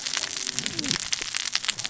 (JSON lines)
{"label": "biophony, cascading saw", "recorder": "SoundTrap 600 or HydroMoth"}